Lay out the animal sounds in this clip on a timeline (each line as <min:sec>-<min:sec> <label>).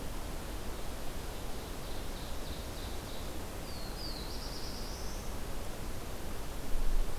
0:00.9-0:03.5 Ovenbird (Seiurus aurocapilla)
0:03.6-0:05.4 Black-throated Blue Warbler (Setophaga caerulescens)